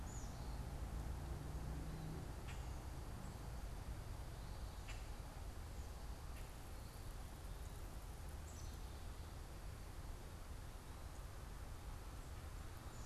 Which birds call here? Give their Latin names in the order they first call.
Poecile atricapillus